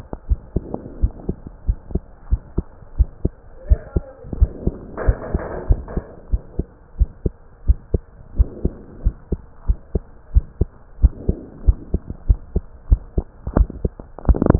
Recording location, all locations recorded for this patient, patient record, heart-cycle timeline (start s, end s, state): pulmonary valve (PV)
aortic valve (AV)+pulmonary valve (PV)+tricuspid valve (TV)+mitral valve (MV)
#Age: Child
#Sex: Male
#Height: 136.0 cm
#Weight: 26.1 kg
#Pregnancy status: False
#Murmur: Absent
#Murmur locations: nan
#Most audible location: nan
#Systolic murmur timing: nan
#Systolic murmur shape: nan
#Systolic murmur grading: nan
#Systolic murmur pitch: nan
#Systolic murmur quality: nan
#Diastolic murmur timing: nan
#Diastolic murmur shape: nan
#Diastolic murmur grading: nan
#Diastolic murmur pitch: nan
#Diastolic murmur quality: nan
#Outcome: Abnormal
#Campaign: 2015 screening campaign
0.00	0.26	unannotated
0.26	0.40	S1
0.40	0.52	systole
0.52	0.64	S2
0.64	0.98	diastole
0.98	1.12	S1
1.12	1.26	systole
1.26	1.38	S2
1.38	1.66	diastole
1.66	1.78	S1
1.78	1.90	systole
1.90	2.02	S2
2.02	2.30	diastole
2.30	2.42	S1
2.42	2.54	systole
2.54	2.64	S2
2.64	2.96	diastole
2.96	3.10	S1
3.10	3.20	systole
3.20	3.34	S2
3.34	3.66	diastole
3.66	3.80	S1
3.80	3.92	systole
3.92	4.06	S2
4.06	4.38	diastole
4.38	4.54	S1
4.54	4.64	systole
4.64	4.74	S2
4.74	5.02	diastole
5.02	5.16	S1
5.16	5.32	systole
5.32	5.42	S2
5.42	5.66	diastole
5.66	5.82	S1
5.82	5.94	systole
5.94	6.04	S2
6.04	6.27	diastole
6.27	6.42	S1
6.42	6.55	systole
6.55	6.66	S2
6.66	6.94	diastole
6.94	7.10	S1
7.10	7.21	systole
7.21	7.32	S2
7.32	7.63	diastole
7.63	7.80	S1
7.80	7.90	systole
7.90	8.04	S2
8.04	8.36	diastole
8.36	8.50	S1
8.50	8.62	systole
8.62	8.72	S2
8.72	9.02	diastole
9.02	9.16	S1
9.16	9.28	systole
9.28	9.40	S2
9.40	9.66	diastole
9.66	9.80	S1
9.80	9.91	systole
9.91	10.02	S2
10.02	10.32	diastole
10.32	10.46	S1
10.46	10.58	systole
10.58	10.68	S2
10.68	11.00	diastole
11.00	11.14	S1
11.14	11.24	systole
11.24	11.36	S2
11.36	11.66	diastole
11.66	11.80	S1
11.80	11.92	systole
11.92	12.02	S2
12.02	12.26	diastole
12.26	12.40	S1
12.40	12.54	systole
12.54	12.64	S2
12.64	12.88	diastole
12.88	13.02	S1
13.02	13.14	systole
13.14	13.24	S2
13.24	13.54	diastole
13.54	13.68	S1
13.68	13.82	systole
13.82	13.92	S2
13.92	14.26	diastole
14.26	14.38	S1
14.38	14.59	unannotated